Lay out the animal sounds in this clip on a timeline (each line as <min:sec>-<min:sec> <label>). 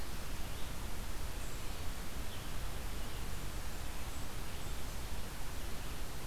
0:00.0-0:06.3 Red-eyed Vireo (Vireo olivaceus)
0:03.1-0:04.9 Blackburnian Warbler (Setophaga fusca)